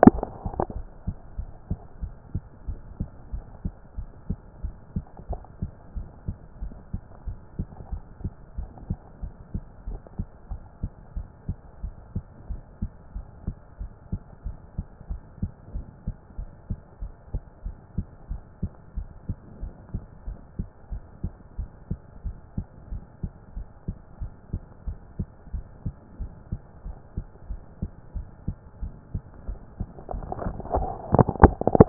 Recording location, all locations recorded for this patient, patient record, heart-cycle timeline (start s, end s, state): pulmonary valve (PV)
aortic valve (AV)+pulmonary valve (PV)+tricuspid valve (TV)+mitral valve (MV)
#Age: nan
#Sex: Female
#Height: nan
#Weight: nan
#Pregnancy status: True
#Murmur: Absent
#Murmur locations: nan
#Most audible location: nan
#Systolic murmur timing: nan
#Systolic murmur shape: nan
#Systolic murmur grading: nan
#Systolic murmur pitch: nan
#Systolic murmur quality: nan
#Diastolic murmur timing: nan
#Diastolic murmur shape: nan
#Diastolic murmur grading: nan
#Diastolic murmur pitch: nan
#Diastolic murmur quality: nan
#Outcome: Abnormal
#Campaign: 2014 screening campaign
0.00	0.24	S1
0.24	0.44	systole
0.44	0.54	S2
0.54	0.74	diastole
0.74	0.86	S1
0.86	1.06	systole
1.06	1.16	S2
1.16	1.38	diastole
1.38	1.50	S1
1.50	1.70	systole
1.70	1.80	S2
1.80	2.02	diastole
2.02	2.14	S1
2.14	2.34	systole
2.34	2.44	S2
2.44	2.66	diastole
2.66	2.78	S1
2.78	2.98	systole
2.98	3.08	S2
3.08	3.32	diastole
3.32	3.44	S1
3.44	3.64	systole
3.64	3.74	S2
3.74	3.96	diastole
3.96	4.08	S1
4.08	4.28	systole
4.28	4.38	S2
4.38	4.62	diastole
4.62	4.74	S1
4.74	4.94	systole
4.94	5.04	S2
5.04	5.28	diastole
5.28	5.40	S1
5.40	5.60	systole
5.60	5.72	S2
5.72	5.96	diastole
5.96	6.08	S1
6.08	6.26	systole
6.26	6.36	S2
6.36	6.60	diastole
6.60	6.72	S1
6.72	6.92	systole
6.92	7.02	S2
7.02	7.26	diastole
7.26	7.38	S1
7.38	7.58	systole
7.58	7.68	S2
7.68	7.90	diastole
7.90	8.02	S1
8.02	8.22	systole
8.22	8.32	S2
8.32	8.56	diastole
8.56	8.70	S1
8.70	8.88	systole
8.88	8.98	S2
8.98	9.22	diastole
9.22	9.34	S1
9.34	9.54	systole
9.54	9.64	S2
9.64	9.88	diastole
9.88	10.00	S1
10.00	10.18	systole
10.18	10.28	S2
10.28	10.50	diastole
10.50	10.62	S1
10.62	10.82	systole
10.82	10.92	S2
10.92	11.16	diastole
11.16	11.28	S1
11.28	11.48	systole
11.48	11.58	S2
11.58	11.82	diastole
11.82	11.94	S1
11.94	12.14	systole
12.14	12.24	S2
12.24	12.48	diastole
12.48	12.60	S1
12.60	12.80	systole
12.80	12.90	S2
12.90	13.14	diastole
13.14	13.26	S1
13.26	13.46	systole
13.46	13.56	S2
13.56	13.80	diastole
13.80	13.92	S1
13.92	14.12	systole
14.12	14.22	S2
14.22	14.44	diastole
14.44	14.56	S1
14.56	14.76	systole
14.76	14.86	S2
14.86	15.10	diastole
15.10	15.22	S1
15.22	15.42	systole
15.42	15.52	S2
15.52	15.74	diastole
15.74	15.86	S1
15.86	16.06	systole
16.06	16.16	S2
16.16	16.38	diastole
16.38	16.50	S1
16.50	16.70	systole
16.70	16.80	S2
16.80	17.02	diastole
17.02	17.12	S1
17.12	17.32	systole
17.32	17.42	S2
17.42	17.64	diastole
17.64	17.76	S1
17.76	17.96	systole
17.96	18.06	S2
18.06	18.30	diastole
18.30	18.42	S1
18.42	18.62	systole
18.62	18.72	S2
18.72	18.96	diastole
18.96	19.08	S1
19.08	19.28	systole
19.28	19.38	S2
19.38	19.60	diastole
19.60	19.72	S1
19.72	19.92	systole
19.92	20.02	S2
20.02	20.26	diastole
20.26	20.38	S1
20.38	20.58	systole
20.58	20.68	S2
20.68	20.92	diastole
20.92	21.04	S1
21.04	21.24	systole
21.24	21.34	S2
21.34	21.58	diastole
21.58	21.70	S1
21.70	21.90	systole
21.90	22.00	S2
22.00	22.24	diastole
22.24	22.36	S1
22.36	22.56	systole
22.56	22.66	S2
22.66	22.90	diastole
22.90	23.02	S1
23.02	23.22	systole
23.22	23.32	S2
23.32	23.56	diastole
23.56	23.68	S1
23.68	23.88	systole
23.88	23.98	S2
23.98	24.20	diastole
24.20	24.32	S1
24.32	24.52	systole
24.52	24.62	S2
24.62	24.86	diastole
24.86	24.98	S1
24.98	25.18	systole
25.18	25.28	S2
25.28	25.52	diastole
25.52	25.64	S1
25.64	25.84	systole
25.84	25.94	S2
25.94	26.18	diastole
26.18	26.32	S1
26.32	26.52	systole
26.52	26.62	S2
26.62	26.86	diastole
26.86	26.96	S1
26.96	27.16	systole
27.16	27.26	S2
27.26	27.48	diastole
27.48	27.60	S1
27.60	27.80	systole
27.80	27.90	S2
27.90	28.14	diastole
28.14	28.26	S1
28.26	28.46	systole
28.46	28.56	S2
28.56	28.80	diastole
28.80	28.92	S1
28.92	29.12	systole
29.12	29.22	S2
29.22	29.46	diastole
29.46	29.58	S1
29.58	29.78	systole
29.78	29.88	S2
29.88	30.12	diastole
30.12	30.26	S1
30.26	30.44	systole
30.44	30.58	S2
30.58	30.74	diastole
30.74	30.92	S1
30.92	31.12	systole
31.12	31.26	S2
31.26	31.42	diastole
31.42	31.56	S1
31.56	31.76	systole
31.76	31.89	S2